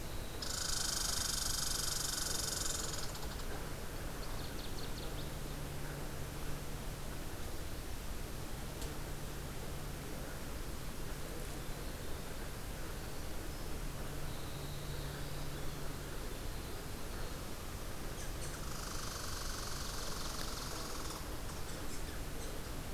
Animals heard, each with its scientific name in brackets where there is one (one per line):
Northern Waterthrush (Parkesia noveboracensis)
Red Squirrel (Tamiasciurus hudsonicus)
Northern Parula (Setophaga americana)
Winter Wren (Troglodytes hiemalis)